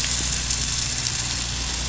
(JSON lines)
{"label": "anthrophony, boat engine", "recorder": "SoundTrap 500"}